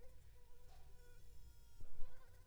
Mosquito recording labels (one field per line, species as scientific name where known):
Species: Culex pipiens complex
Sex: female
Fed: unfed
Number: one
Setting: cup